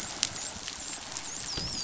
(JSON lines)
{"label": "biophony, dolphin", "recorder": "SoundTrap 500"}